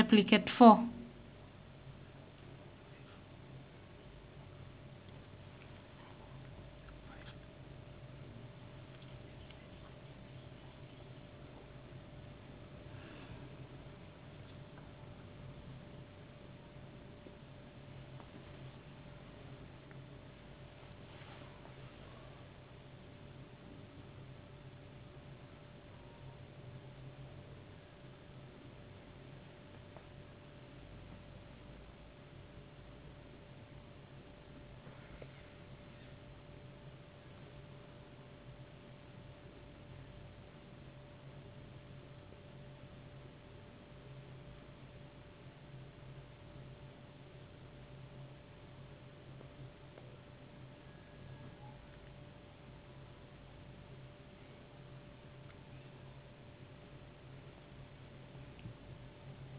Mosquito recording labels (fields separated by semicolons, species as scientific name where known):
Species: no mosquito; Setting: insect culture